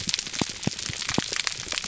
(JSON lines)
{"label": "biophony, pulse", "recorder": "SoundTrap 300"}